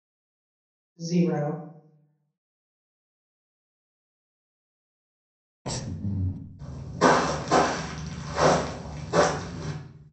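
At 1.01 seconds, a voice says "Zero." Afterwards, at 5.65 seconds, breathing can be heard. Next, at 6.58 seconds, someone walks.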